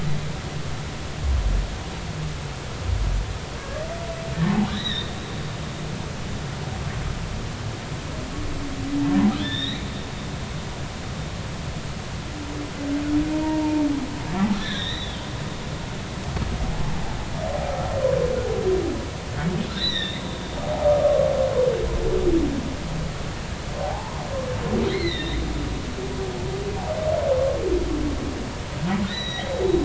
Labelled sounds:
3.6	3.8	humpback whale, 1.1 to 1.2 kHz
4.7	5.1	humpback whale, 1.7 to 4.1 kHz
9.4	9.9	humpback whale, 1.7 to 4.1 kHz
13.3	13.8	humpback whale, 0.86 to 0.99 kHz
14.6	15.3	humpback whale, 1.6 to 4.1 kHz
19.7	20.2	humpback whale, 1.7 to 4.2 kHz
20.9	21.3	humpback whale, 1.1 to 1.3 kHz
23.8	24.2	humpback whale, 0.80 to 1.1 kHz
24.8	25.4	humpback whale, 1.8 to 4.3 kHz
29.1	29.5	humpback whale, 1.7 to 6.0 kHz

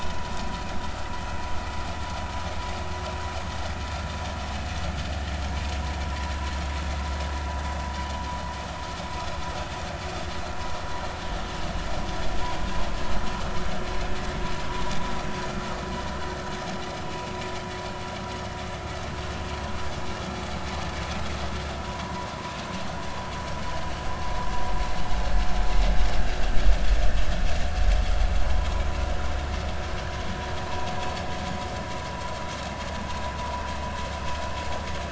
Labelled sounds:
17.0	17.3	vessel noise, 2.5 to 2.7 kHz
21.9	22.3	vessel noise, 0.93 to 1.1 kHz
28.4	28.8	vessel noise, 0.90 to 1.1 kHz

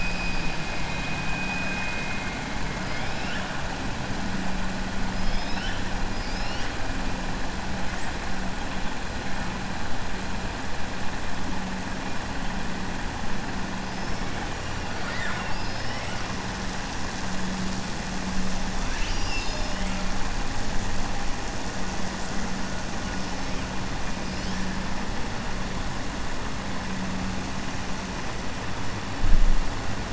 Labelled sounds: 2.8	3.5	killer whale, 1.4 to 4.3 kHz
5.1	5.8	killer whale, 1.8 to 5.8 kHz
14.9	15.6	killer whale, 0.88 to 4.7 kHz
18.8	20.0	killer whale, 1.4 to 7.5 kHz

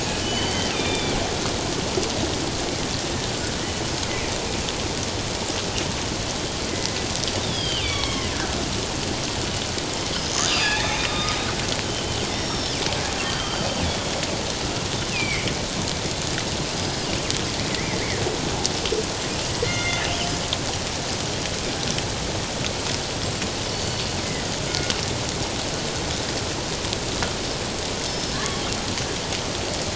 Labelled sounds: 0.2	1.2	killer whale, northern resident, G clan, 2.2 to 6.2 kHz
6.7	8.3	killer whale, northern resident, G clan, 1.0 to 5.8 kHz
10.4	11.4	killer whale, northern resident, G clan, 1.1 to 4.9 kHz
11.9	12.8	killer whale, northern resident, G clan, 1.8 to 5.7 kHz
13.2	14.2	killer whale, northern resident, G clan, 1.2 to 3.6 kHz
15.1	15.5	killer whale, northern resident, G clan, 2.0 to 2.8 kHz
16.8	18.0	killer whale, northern resident, G clan, 1.9 to 5.2 kHz
19.6	20.0	killer whale, northern resident, G clan, 1.4 to 4.3 kHz
23.7	24.9	killer whale, northern resident, G clan, 1.4 to 4.5 kHz
28.1	28.7	killer whale, northern resident, G clan, 1.0 to 5.3 kHz

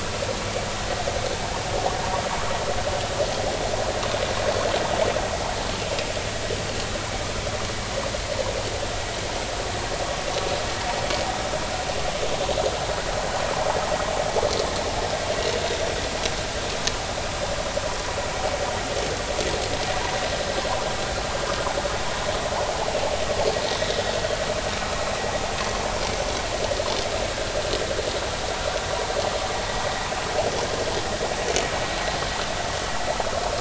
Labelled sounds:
15.4	15.6	vessel noise, 2.7 to 2.9 kHz
23.7	24.0	vessel noise, 3.6 to 3.9 kHz

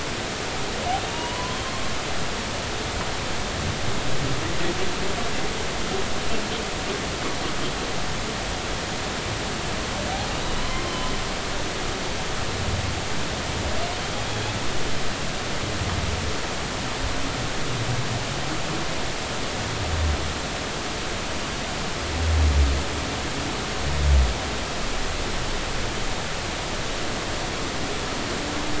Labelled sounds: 1.1	1.6	humpback whale, 0.90 to 3.0 kHz
10.6	10.9	humpback whale, 0.96 to 1.2 kHz
14.1	14.5	humpback whale, 3.2 to 3.5 kHz

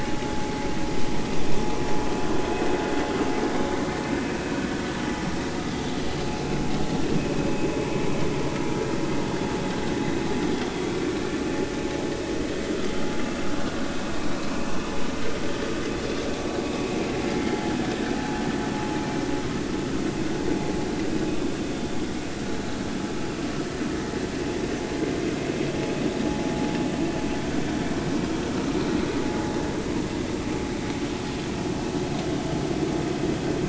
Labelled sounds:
10.9	11.1	vessel noise, 2.3 to 2.4 kHz
28.5	28.8	vessel noise, 1.2 to 1.4 kHz

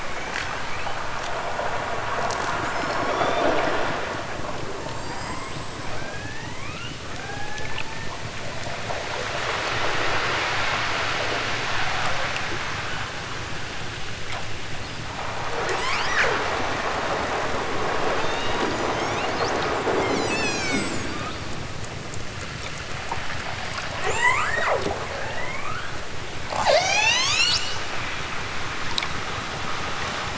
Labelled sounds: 0.4	1.1	killer whale, southern Alaska resident, 1.4 to 5.9 kHz
2.6	4.0	killer whale, southern Alaska resident, 1.9 to 8.0 kHz
4.7	8.2	killer whale, southern Alaska resident, 0.32 to 8.0 kHz
15.5	16.3	killer whale, southern Alaska resident, 0.28 to 8.0 kHz
18.1	19.4	killer whale, southern Alaska resident, 1.3 to 8.0 kHz
20.0	21.1	killer whale, southern Alaska resident, 1.6 to 8.0 kHz
24.0	26.1	killer whale, southern Alaska resident, 0.28 to 8.0 kHz
26.5	27.8	killer whale, southern Alaska resident, 0.23 to 8.0 kHz

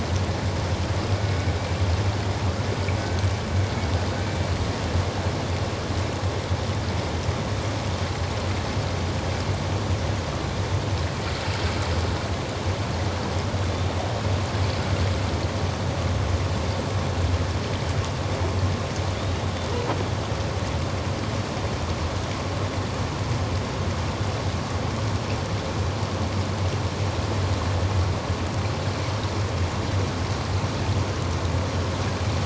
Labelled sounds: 3.0	3.2	killer whale, Bigg's (transient), 1.5 to 1.6 kHz

